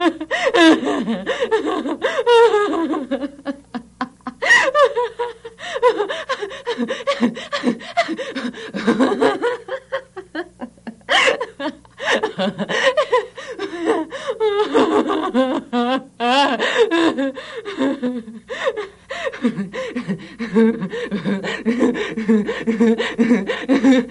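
A woman laughs uncontrollably, oscillating and repeating naturally. 0:00.0 - 0:24.1

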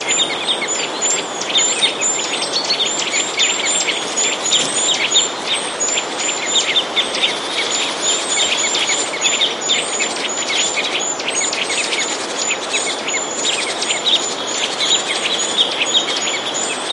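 Constant rippling of water. 0:00.0 - 0:16.9
Birds chirping repeatedly. 0:00.0 - 0:16.9

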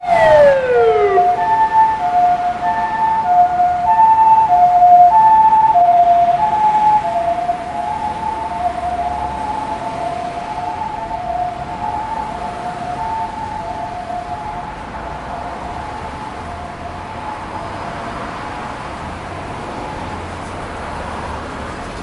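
A siren sounds loudly once. 0:00.0 - 0:01.3
An ambulance siren sounds repeatedly while fading and moving away. 0:01.4 - 0:22.0
Multiple cars are driving in traffic. 0:01.4 - 0:22.0

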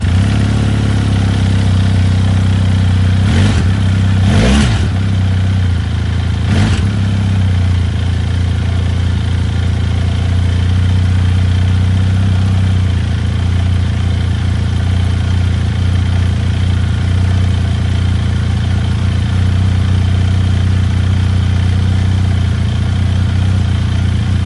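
An Italian motorbike sounds loudly. 0:01.8 - 0:09.2
A deep engine rumble as it starts. 0:10.2 - 0:21.5

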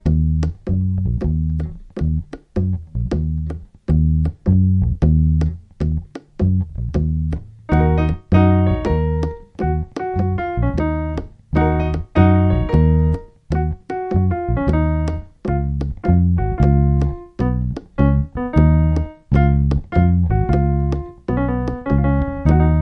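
A pair of hand drums produces crisp beats. 0:00.0 - 0:22.8
An electric bass plays deep, rhythmic tones. 0:00.0 - 0:22.8
A piano produces clear, rhythmic music. 0:07.7 - 0:22.8

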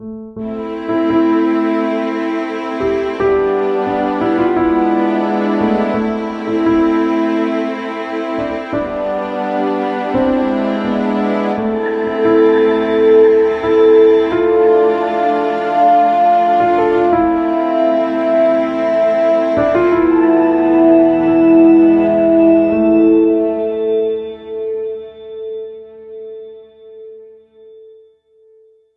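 A piano plays music that sounds sad. 0:00.0 - 0:24.0
Strings playing sad music. 0:00.8 - 0:28.0

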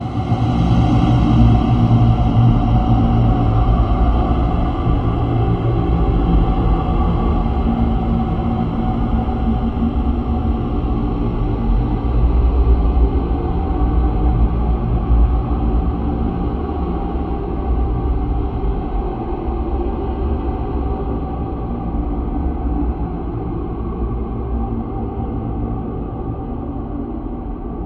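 A deep, scary bass sound fades away slowly indoors. 0:00.0 - 0:27.9

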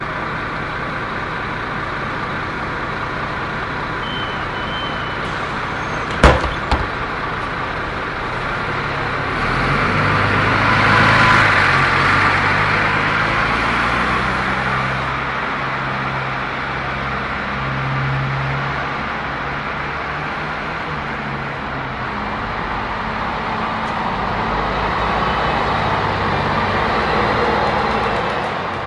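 The engine of a bus runs constantly. 0:00.0 - 0:04.0
A high-pitched bus beep sounds. 0:04.0 - 0:06.2
Bus doors opening and closing. 0:06.2 - 0:07.0
A bus engine sound fading away. 0:07.0 - 0:21.3
An engine gradually increases in sound. 0:21.3 - 0:28.9

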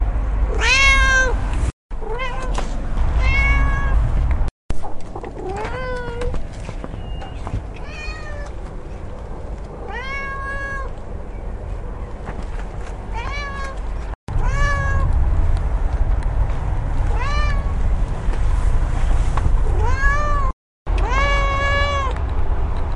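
Traffic sounds in the background. 0:00.0 - 0:23.0
A cat is meowing loudly outdoors. 0:00.5 - 0:01.4
A cat meows multiple times outdoors. 0:01.9 - 0:04.6
A cat is meowing outdoors. 0:05.3 - 0:06.4
A cat is meowing outdoors. 0:07.7 - 0:08.6
A cat is meowing outdoors. 0:09.8 - 0:11.0
A cat is meowing outdoors. 0:13.1 - 0:15.1
A cat is meowing outdoors. 0:17.0 - 0:17.8
A cat is meowing outdoors. 0:19.7 - 0:22.2

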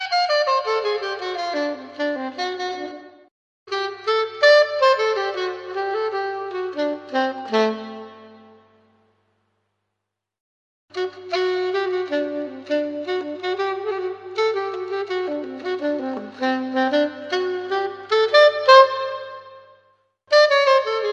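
A saxophone plays a short warm jazz melody. 0:00.0 - 0:03.1
A saxophone plays a jazz melody. 0:03.7 - 0:09.6
A saxophone plays a long jazz melody. 0:11.0 - 0:19.9
A saxophone plays a short jazz melody. 0:20.3 - 0:21.1

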